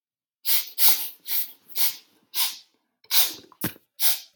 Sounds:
Sniff